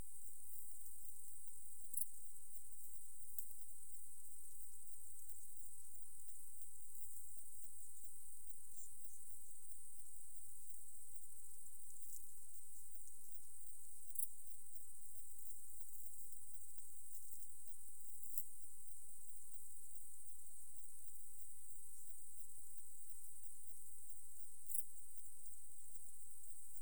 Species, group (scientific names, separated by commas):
Tessellana tessellata, Orthoptera